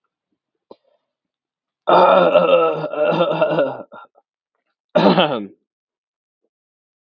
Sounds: Throat clearing